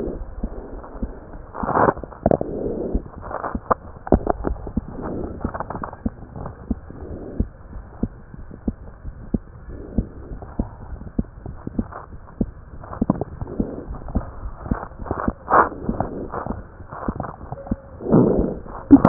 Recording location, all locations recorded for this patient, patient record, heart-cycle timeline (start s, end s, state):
pulmonary valve (PV)
aortic valve (AV)+pulmonary valve (PV)+tricuspid valve (TV)+mitral valve (MV)
#Age: Child
#Sex: Male
#Height: 115.0 cm
#Weight: 23.5 kg
#Pregnancy status: False
#Murmur: Absent
#Murmur locations: nan
#Most audible location: nan
#Systolic murmur timing: nan
#Systolic murmur shape: nan
#Systolic murmur grading: nan
#Systolic murmur pitch: nan
#Systolic murmur quality: nan
#Diastolic murmur timing: nan
#Diastolic murmur shape: nan
#Diastolic murmur grading: nan
#Diastolic murmur pitch: nan
#Diastolic murmur quality: nan
#Outcome: Abnormal
#Campaign: 2015 screening campaign
0.00	6.14	unannotated
6.14	6.42	diastole
6.42	6.54	S1
6.54	6.66	systole
6.66	6.80	S2
6.80	7.05	diastole
7.05	7.23	S1
7.23	7.36	systole
7.36	7.50	S2
7.50	7.73	diastole
7.73	7.85	S1
7.85	7.98	systole
7.98	8.16	S2
8.16	8.37	diastole
8.37	8.54	S1
8.54	8.63	systole
8.63	8.75	S2
8.75	9.04	diastole
9.04	9.17	S1
9.17	9.30	systole
9.30	9.48	S2
9.48	9.69	diastole
9.69	9.83	S1
9.83	9.94	systole
9.94	10.07	S2
10.07	10.29	diastole
10.29	10.41	S1
10.41	10.55	systole
10.55	10.65	S2
10.65	10.85	diastole
10.85	11.02	S1
11.02	11.14	systole
11.14	11.26	S2
11.26	11.49	diastole
11.49	11.67	S1
11.67	11.76	systole
11.76	11.85	S2
11.85	12.08	diastole
12.08	12.21	S1
12.21	12.38	systole
12.38	12.50	S2
12.50	12.72	diastole
12.72	12.89	S1
12.89	12.99	systole
12.99	13.08	S2
13.08	13.88	unannotated
13.88	14.02	S1
14.02	14.12	systole
14.12	14.26	S2
14.26	14.43	diastole
14.43	14.56	S1
14.56	14.69	systole
14.69	14.82	S2
14.82	15.01	diastole
15.01	19.09	unannotated